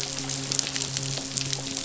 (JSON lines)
{"label": "biophony, midshipman", "recorder": "SoundTrap 500"}